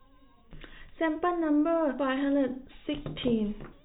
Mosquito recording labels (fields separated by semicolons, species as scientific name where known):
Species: no mosquito; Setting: cup